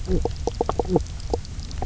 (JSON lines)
{"label": "biophony, knock croak", "recorder": "SoundTrap 300"}